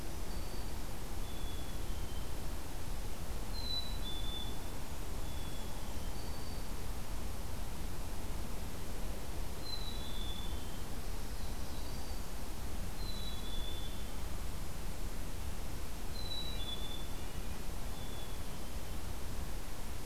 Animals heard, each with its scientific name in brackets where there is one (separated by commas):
Black-throated Green Warbler (Setophaga virens), Black-capped Chickadee (Poecile atricapillus), Red-breasted Nuthatch (Sitta canadensis)